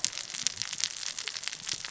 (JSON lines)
{"label": "biophony, cascading saw", "recorder": "SoundTrap 600 or HydroMoth"}